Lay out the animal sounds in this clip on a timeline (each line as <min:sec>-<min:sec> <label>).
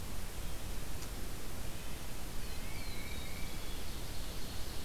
0:01.6-0:02.8 Red-breasted Nuthatch (Sitta canadensis)
0:02.5-0:03.7 Tufted Titmouse (Baeolophus bicolor)
0:02.9-0:03.8 Pine Warbler (Setophaga pinus)
0:03.6-0:04.8 Ovenbird (Seiurus aurocapilla)